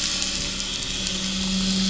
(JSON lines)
{"label": "anthrophony, boat engine", "recorder": "SoundTrap 500"}